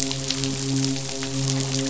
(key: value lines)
label: biophony, midshipman
recorder: SoundTrap 500